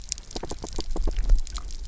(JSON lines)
{"label": "biophony, knock", "recorder": "SoundTrap 300"}